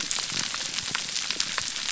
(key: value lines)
label: biophony
recorder: SoundTrap 300